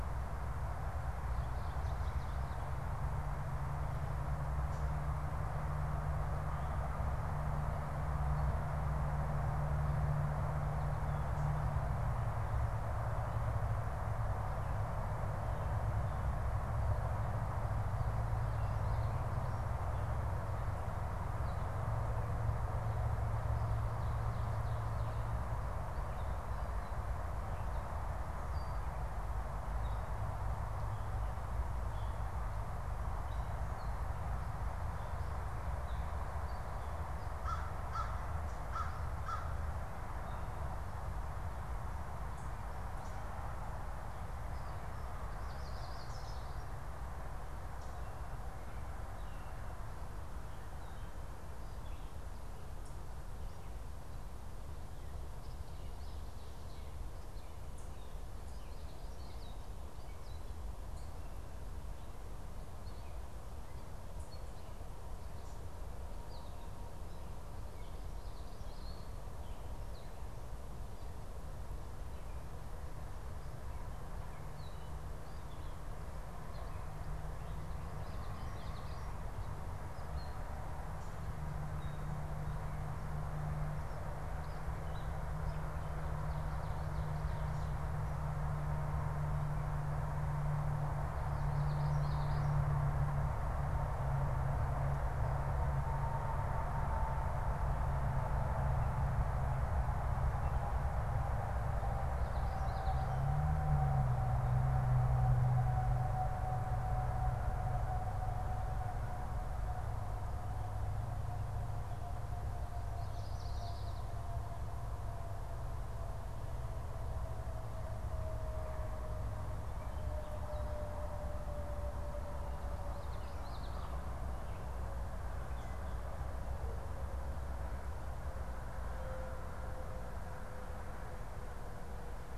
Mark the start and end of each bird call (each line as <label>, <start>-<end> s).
Gray Catbird (Dumetella carolinensis), 29.7-37.0 s
American Crow (Corvus brachyrhynchos), 37.3-39.5 s
Yellow Warbler (Setophaga petechia), 45.3-46.8 s
Gray Catbird (Dumetella carolinensis), 62.7-70.5 s
Common Yellowthroat (Geothlypis trichas), 77.7-79.3 s
Gray Catbird (Dumetella carolinensis), 79.9-85.7 s
Common Yellowthroat (Geothlypis trichas), 91.4-92.6 s
Common Yellowthroat (Geothlypis trichas), 102.2-103.3 s
Common Yellowthroat (Geothlypis trichas), 112.8-114.4 s
Common Yellowthroat (Geothlypis trichas), 122.7-124.3 s